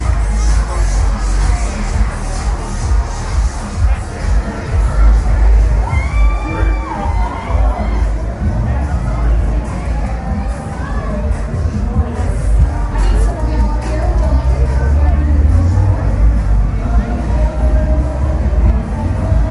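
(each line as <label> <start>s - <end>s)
Loud but muffled dance music playing from various distant sources. 0.0s - 19.5s
People are yelling loudly on a street. 5.8s - 9.0s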